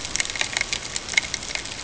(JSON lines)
{"label": "ambient", "recorder": "HydroMoth"}